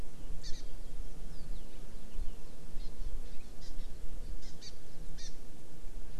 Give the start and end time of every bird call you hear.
[0.47, 0.57] Hawaii Amakihi (Chlorodrepanis virens)
[2.77, 2.87] Hawaii Amakihi (Chlorodrepanis virens)
[3.57, 3.87] Hawaii Amakihi (Chlorodrepanis virens)
[4.37, 4.67] Hawaii Amakihi (Chlorodrepanis virens)
[5.17, 5.27] Hawaii Amakihi (Chlorodrepanis virens)

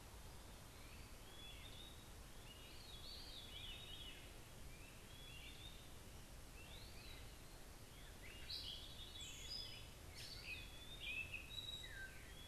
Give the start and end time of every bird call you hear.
[0.80, 12.47] Great Crested Flycatcher (Myiarchus crinitus)
[1.00, 12.47] Eastern Wood-Pewee (Contopus virens)
[8.30, 12.47] Gray Catbird (Dumetella carolinensis)

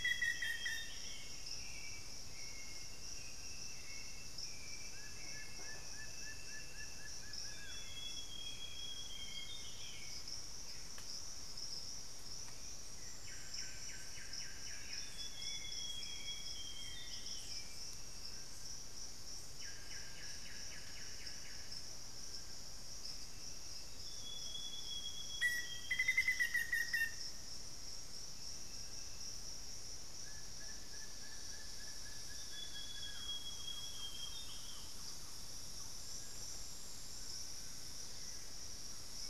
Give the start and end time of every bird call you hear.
[0.00, 1.16] Black-faced Antthrush (Formicarius analis)
[0.00, 1.26] Amazonian Grosbeak (Cyanoloxia rothschildii)
[0.00, 18.76] Hauxwell's Thrush (Turdus hauxwelli)
[4.76, 8.16] Plain-winged Antshrike (Thamnophilus schistaceus)
[7.36, 10.16] Amazonian Grosbeak (Cyanoloxia rothschildii)
[12.86, 22.06] Solitary Black Cacique (Cacicus solitarius)
[14.66, 17.46] Amazonian Grosbeak (Cyanoloxia rothschildii)
[20.06, 20.66] Piratic Flycatcher (Legatus leucophaius)
[23.76, 26.56] Amazonian Grosbeak (Cyanoloxia rothschildii)
[25.16, 27.46] Black-faced Antthrush (Formicarius analis)
[30.06, 33.56] Plain-winged Antshrike (Thamnophilus schistaceus)
[32.16, 34.96] Amazonian Grosbeak (Cyanoloxia rothschildii)
[32.86, 35.66] Thrush-like Wren (Campylorhynchus turdinus)
[36.76, 38.26] unidentified bird

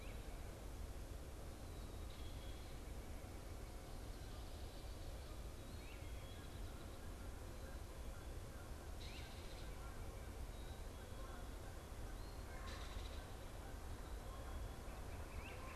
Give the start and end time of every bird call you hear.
[0.00, 15.76] Great Crested Flycatcher (Myiarchus crinitus)
[8.82, 13.52] Belted Kingfisher (Megaceryle alcyon)
[15.12, 15.76] Northern Flicker (Colaptes auratus)

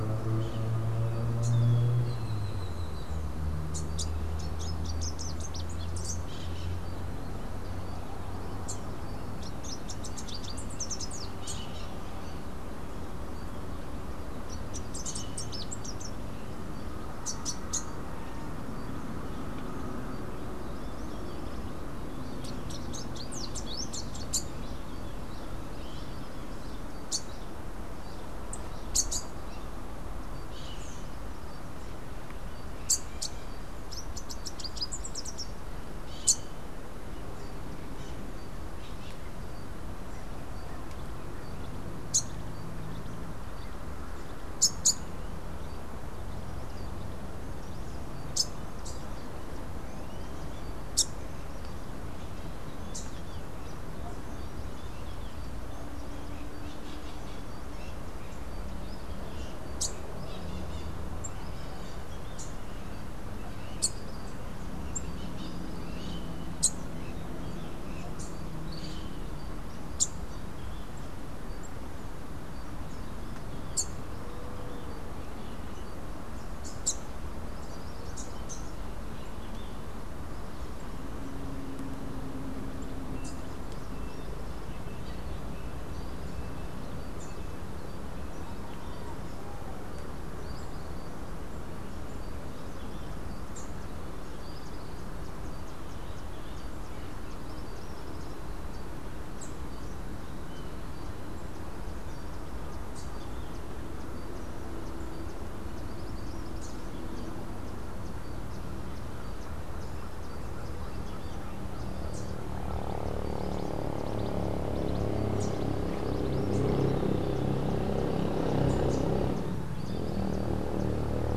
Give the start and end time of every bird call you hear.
[1.97, 3.27] Great-tailed Grackle (Quiscalus mexicanus)
[3.67, 60.47] Rufous-capped Warbler (Basileuterus rufifrons)
[5.97, 7.07] Crimson-fronted Parakeet (Psittacara finschi)
[62.07, 79.07] Rufous-capped Warbler (Basileuterus rufifrons)
[82.97, 83.57] Rufous-capped Warbler (Basileuterus rufifrons)
[93.27, 93.97] Rufous-capped Warbler (Basileuterus rufifrons)
[99.17, 99.87] Rufous-capped Warbler (Basileuterus rufifrons)
[106.37, 106.97] Rufous-capped Warbler (Basileuterus rufifrons)
[115.17, 115.77] Rufous-capped Warbler (Basileuterus rufifrons)

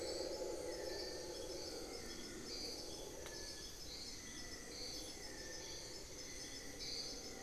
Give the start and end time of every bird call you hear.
[1.28, 2.58] unidentified bird
[4.18, 6.28] unidentified bird

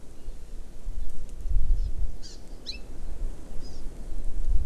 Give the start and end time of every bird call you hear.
[1.80, 1.90] Hawaii Amakihi (Chlorodrepanis virens)
[2.20, 2.90] Hawaii Amakihi (Chlorodrepanis virens)
[3.60, 3.80] Hawaii Amakihi (Chlorodrepanis virens)

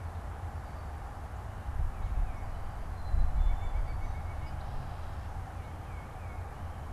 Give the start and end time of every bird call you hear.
[1.60, 2.70] Tufted Titmouse (Baeolophus bicolor)
[2.80, 4.00] Black-capped Chickadee (Poecile atricapillus)
[3.20, 4.70] White-breasted Nuthatch (Sitta carolinensis)
[5.20, 6.70] Tufted Titmouse (Baeolophus bicolor)

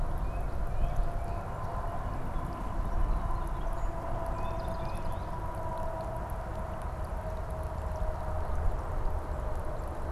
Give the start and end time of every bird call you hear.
[0.00, 1.50] Tufted Titmouse (Baeolophus bicolor)
[2.70, 5.40] Song Sparrow (Melospiza melodia)
[4.20, 5.30] Tufted Titmouse (Baeolophus bicolor)

